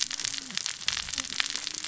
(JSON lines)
{"label": "biophony, cascading saw", "recorder": "SoundTrap 600 or HydroMoth"}